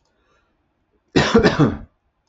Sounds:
Cough